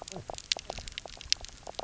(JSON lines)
{"label": "biophony, knock croak", "recorder": "SoundTrap 300"}